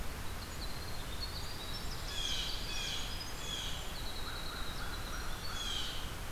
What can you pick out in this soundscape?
Winter Wren, Blue Jay, American Crow